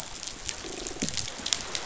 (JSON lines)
{"label": "biophony, croak", "recorder": "SoundTrap 500"}